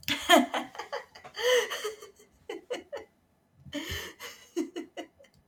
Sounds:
Laughter